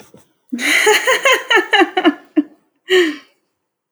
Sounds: Laughter